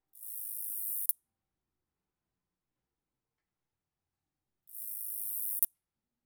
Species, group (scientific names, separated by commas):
Acrometopa servillea, Orthoptera